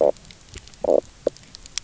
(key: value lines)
label: biophony, knock croak
recorder: SoundTrap 300